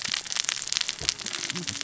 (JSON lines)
{"label": "biophony, cascading saw", "recorder": "SoundTrap 600 or HydroMoth"}